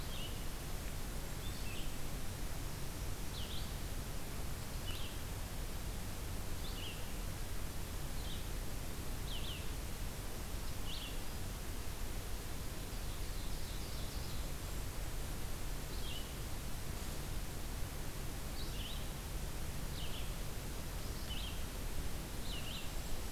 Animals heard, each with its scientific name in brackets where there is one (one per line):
Golden-crowned Kinglet (Regulus satrapa)
Red-eyed Vireo (Vireo olivaceus)
Ovenbird (Seiurus aurocapilla)